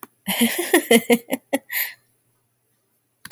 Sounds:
Laughter